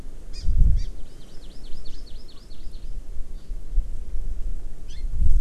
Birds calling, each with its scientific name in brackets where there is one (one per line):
Hawaii Amakihi (Chlorodrepanis virens)